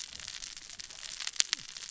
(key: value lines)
label: biophony, cascading saw
recorder: SoundTrap 600 or HydroMoth